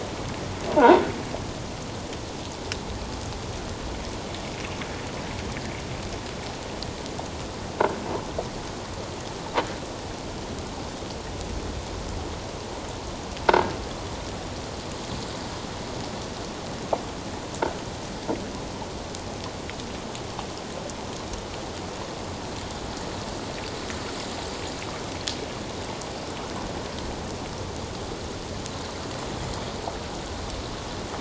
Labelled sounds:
0.8	1.0	croaking sound likely from a nearby submerged object, 0.78 to 1.1 kHz

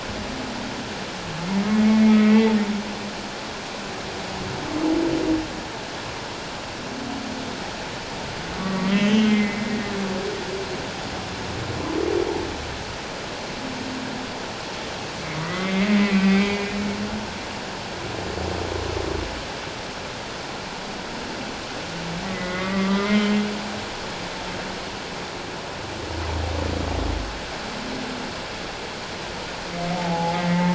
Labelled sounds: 2.0	2.5	humpback whale, 1.9 to 2.4 kHz
8.6	9.8	humpback whale, 1.1 to 3.3 kHz
15.4	16.8	humpback whale, 1.1 to 3.3 kHz
22.3	23.4	humpback whale, 1.1 to 3.2 kHz
30.0	30.7	humpback whale, 0.78 to 2.2 kHz

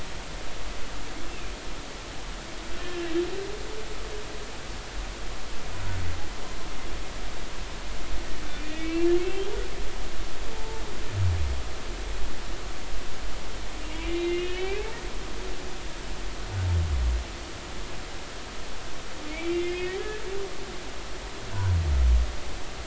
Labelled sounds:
1.3	1.5	humpback whale, 2.3 to 2.8 kHz
2.8	3.1	humpback whale, 1.6 to 1.8 kHz
8.5	9.1	humpback whale, 1.8 to 2.8 kHz
10.5	10.8	humpback whale, 0.83 to 0.93 kHz
13.9	14.9	humpback whale, 1.8 to 3.1 kHz
19.3	20.0	humpback whale, 1.8 to 3.3 kHz
21.5	21.8	humpback whale, 0.93 to 1.1 kHz

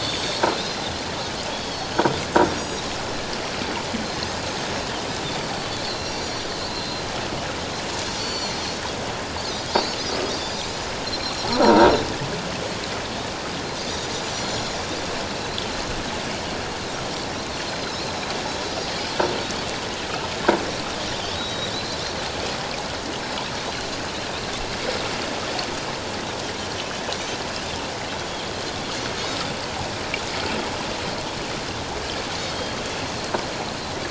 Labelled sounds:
1.5	1.8	Pacific white-sided dolphin, 3.1 to 3.4 kHz
2.5	2.8	Pacific white-sided dolphin, 4.7 to 6.8 kHz
5.9	7.0	Pacific white-sided dolphin, 2.7 to 5.8 kHz
8.2	8.8	Pacific white-sided dolphin, 4.0 to 7.1 kHz
9.4	10.0	Pacific white-sided dolphin, 3.6 to 6.8 kHz
10.3	10.9	Pacific white-sided dolphin, 4.7 to 7.1 kHz
11.2	11.5	Pacific white-sided dolphin, 4.0 to 4.3 kHz
11.6	11.9	croaking sound likely from a nearby submerged object, 0.88 to 0.97 kHz
14.3	14.8	Pacific white-sided dolphin, 4.1 to 7.2 kHz
17.6	18.3	Pacific white-sided dolphin, 3.9 to 4.3 kHz
19.0	19.2	Pacific white-sided dolphin, 5.8 to 6.1 kHz
21.3	22.0	Pacific white-sided dolphin, 3.8 to 5.8 kHz
23.6	23.9	Pacific white-sided dolphin, 3.8 to 4.4 kHz
26.6	27.4	Pacific white-sided dolphin, 5.5 to 6.3 kHz
32.5	32.8	Pacific white-sided dolphin, 3.2 to 3.3 kHz

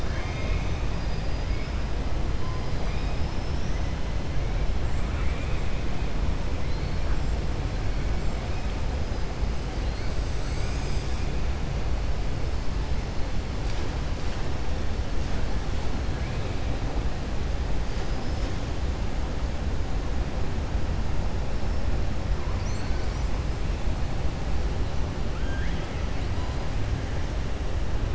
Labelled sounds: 0.0	0.8	killer whale, 0.76 to 3.7 kHz
5.0	5.8	killer whale, 1.3 to 3.5 kHz
25.3	26.1	killer whale, 1.3 to 3.4 kHz

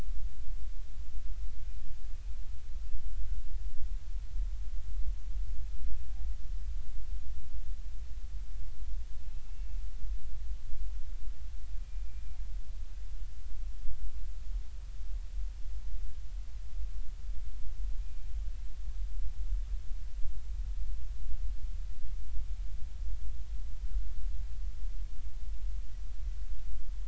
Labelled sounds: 9.2	9.8	killer whale, northern resident, G clan, 2.5 to 2.8 kHz

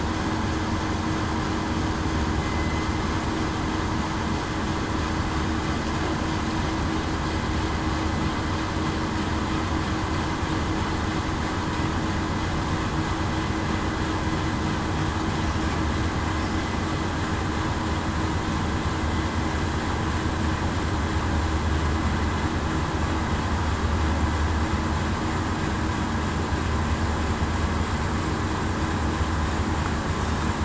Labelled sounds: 2.4	2.7	killer whale, southern resident, 2.0 to 2.1 kHz

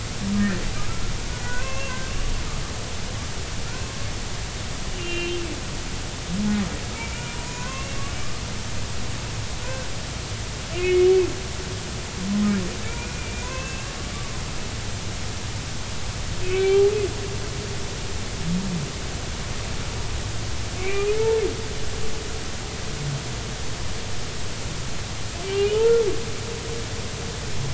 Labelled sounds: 1.4	2.0	humpback whale, 0.93 to 2.8 kHz
5.0	5.4	humpback whale, 2.4 to 3.2 kHz
6.9	8.0	humpback whale, 0.96 to 7.0 kHz
9.6	9.9	humpback whale, 1.4 to 1.6 kHz
10.8	11.1	humpback whale, 2.1 to 2.3 kHz
12.9	14.4	humpback whale, 0.96 to 2.8 kHz
16.5	16.9	humpback whale, 0.80 to 2.4 kHz
20.8	21.1	humpback whale, 2.0 to 2.6 kHz
25.4	26.0	humpback whale, 1.2 to 3.2 kHz

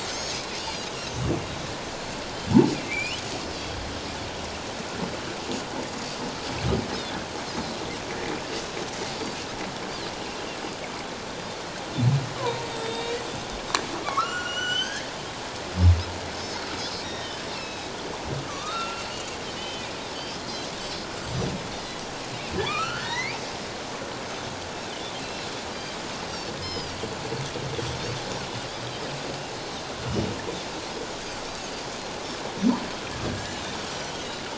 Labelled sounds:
0.0	0.9	Pacific white-sided dolphin, 3.8 to 6.8 kHz
1.9	2.1	Pacific white-sided dolphin, 6.9 to 7.3 kHz
2.8	3.2	humpback whale, 2.0 to 3.1 kHz
3.5	3.8	Pacific white-sided dolphin, 3.2 to 3.4 kHz
12.4	13.2	humpback whale, 0.88 to 7.8 kHz
12.9	13.2	Pacific white-sided dolphin, 2.7 to 2.9 kHz
14.0	15.1	humpback whale, 1.0 to 7.5 kHz
17.0	17.9	Pacific white-sided dolphin, 1.6 to 5.8 kHz
18.5	19.1	humpback whale, 1.1 to 2.8 kHz
19.6	20.7	Pacific white-sided dolphin, 2.2 to 4.2 kHz
22.6	23.0	Pacific white-sided dolphin, 2.2 to 4.6 kHz
22.7	23.4	humpback whale, 1.1 to 4.8 kHz
25.2	26.0	Pacific white-sided dolphin, 2.6 to 4.8 kHz
26.6	27.0	Pacific white-sided dolphin, 2.0 to 5.3 kHz
30.1	30.3	Pacific white-sided dolphin, 2.8 to 3.0 kHz
33.5	34.1	Pacific white-sided dolphin, 2.8 to 6.0 kHz

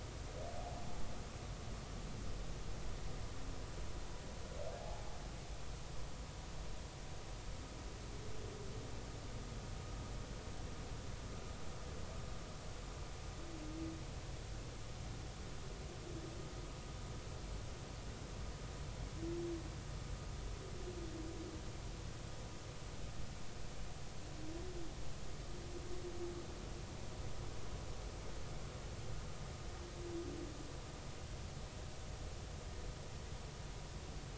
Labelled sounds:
4.8	5.0	humpback whale, 0.80 to 0.90 kHz

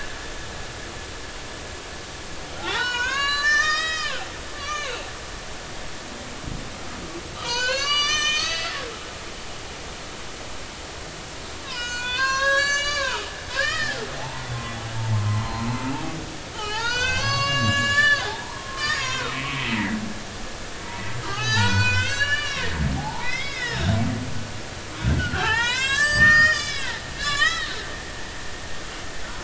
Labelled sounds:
2.6	5.1	humpback whale, 0.80 to 7.1 kHz
7.4	8.8	humpback whale, 0.96 to 7.6 kHz
11.6	14.5	humpback whale, 0.80 to 8.0 kHz
15.0	15.7	humpback whale, 0.80 to 1.1 kHz
16.5	20.0	humpback whale, 0.80 to 7.9 kHz
21.2	24.0	humpback whale, 0.80 to 7.5 kHz
25.0	27.9	humpback whale, 0.80 to 8.0 kHz

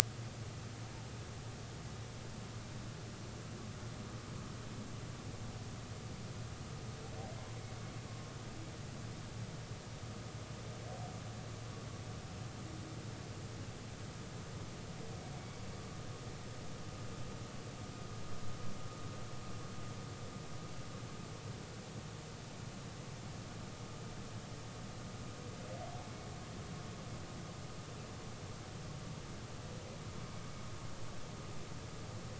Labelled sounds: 26.0	26.3	humpback whale, 2.2 to 2.3 kHz

